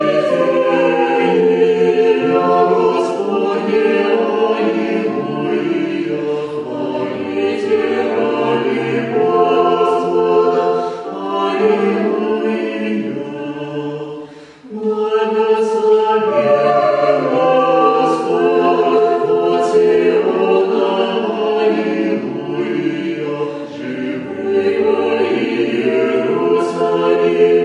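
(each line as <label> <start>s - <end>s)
A choir of male and female voices singing sacred music. 0.0s - 27.6s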